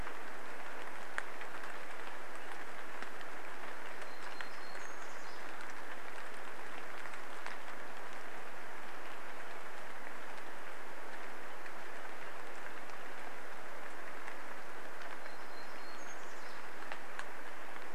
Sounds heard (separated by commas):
rain, warbler song